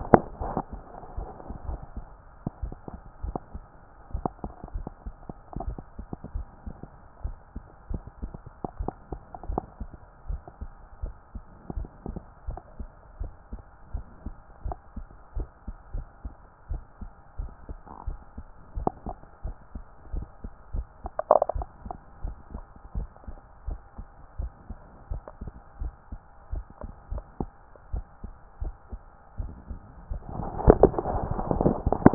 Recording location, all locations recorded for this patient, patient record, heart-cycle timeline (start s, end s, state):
tricuspid valve (TV)
pulmonary valve (PV)+tricuspid valve (TV)+mitral valve (MV)
#Age: nan
#Sex: Female
#Height: nan
#Weight: nan
#Pregnancy status: True
#Murmur: Absent
#Murmur locations: nan
#Most audible location: nan
#Systolic murmur timing: nan
#Systolic murmur shape: nan
#Systolic murmur grading: nan
#Systolic murmur pitch: nan
#Systolic murmur quality: nan
#Diastolic murmur timing: nan
#Diastolic murmur shape: nan
#Diastolic murmur grading: nan
#Diastolic murmur pitch: nan
#Diastolic murmur quality: nan
#Outcome: Normal
#Campaign: 2014 screening campaign
0.00	9.37	unannotated
9.37	9.48	diastole
9.48	9.62	S1
9.62	9.80	systole
9.80	9.90	S2
9.90	10.28	diastole
10.28	10.40	S1
10.40	10.60	systole
10.60	10.70	S2
10.70	11.02	diastole
11.02	11.14	S1
11.14	11.34	systole
11.34	11.42	S2
11.42	11.74	diastole
11.74	11.88	S1
11.88	12.08	systole
12.08	12.18	S2
12.18	12.48	diastole
12.48	12.60	S1
12.60	12.78	systole
12.78	12.88	S2
12.88	13.20	diastole
13.20	13.32	S1
13.32	13.52	systole
13.52	13.60	S2
13.60	13.94	diastole
13.94	14.04	S1
14.04	14.24	systole
14.24	14.34	S2
14.34	14.64	diastole
14.64	14.76	S1
14.76	14.96	systole
14.96	15.06	S2
15.06	15.36	diastole
15.36	15.48	S1
15.48	15.66	systole
15.66	15.76	S2
15.76	15.94	diastole
15.94	16.06	S1
16.06	16.24	systole
16.24	16.34	S2
16.34	16.70	diastole
16.70	16.82	S1
16.82	17.00	systole
17.00	17.10	S2
17.10	17.40	diastole
17.40	17.52	S1
17.52	17.68	systole
17.68	17.78	S2
17.78	18.06	diastole
18.06	18.18	S1
18.18	18.36	systole
18.36	18.46	S2
18.46	18.76	diastole
18.76	18.90	S1
18.90	19.06	systole
19.06	19.16	S2
19.16	19.44	diastole
19.44	19.56	S1
19.56	19.74	systole
19.74	19.84	S2
19.84	20.12	diastole
20.12	20.26	S1
20.26	20.44	systole
20.44	20.52	S2
20.52	20.74	diastole
20.74	20.86	S1
20.86	21.02	systole
21.02	21.12	S2
21.12	21.54	diastole
21.54	21.68	S1
21.68	21.84	systole
21.84	21.94	S2
21.94	22.24	diastole
22.24	22.36	S1
22.36	22.54	systole
22.54	22.64	S2
22.64	22.96	diastole
22.96	23.08	S1
23.08	23.28	systole
23.28	23.36	S2
23.36	23.68	diastole
23.68	23.80	S1
23.80	23.98	systole
23.98	24.06	S2
24.06	24.38	diastole
24.38	24.52	S1
24.52	24.68	systole
24.68	24.78	S2
24.78	25.10	diastole
25.10	25.22	S1
25.22	25.42	systole
25.42	25.52	S2
25.52	25.80	diastole
25.80	25.94	S1
25.94	26.12	systole
26.12	26.20	S2
26.20	26.52	diastole
26.52	26.64	S1
26.64	26.82	systole
26.82	26.92	S2
26.92	27.12	diastole
27.12	27.24	S1
27.24	27.40	systole
27.40	27.50	S2
27.50	27.92	diastole
27.92	28.06	S1
28.06	28.24	systole
28.24	28.32	S2
28.32	28.62	diastole
28.62	28.74	S1
28.74	28.92	systole
28.92	29.00	S2
29.00	29.40	diastole
29.40	29.52	S1
29.52	29.70	systole
29.70	29.80	S2
29.80	30.10	diastole
30.10	32.14	unannotated